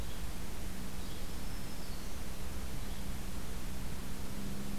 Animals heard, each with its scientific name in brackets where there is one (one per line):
Yellow-bellied Flycatcher (Empidonax flaviventris)
Black-throated Green Warbler (Setophaga virens)